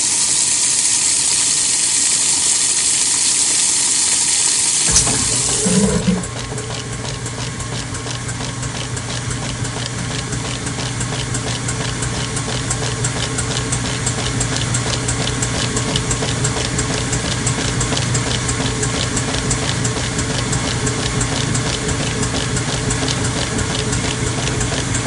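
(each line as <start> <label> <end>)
0.0 Water is filling a tank. 5.1
4.8 A motor starts with a loud click. 6.3
4.9 A washing machine tumbles rhythmically. 25.1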